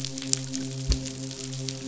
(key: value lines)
label: biophony, midshipman
recorder: SoundTrap 500